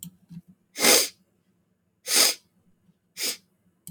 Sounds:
Sniff